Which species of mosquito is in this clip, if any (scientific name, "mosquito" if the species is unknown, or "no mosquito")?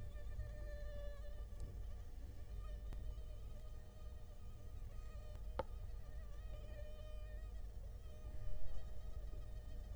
Culex quinquefasciatus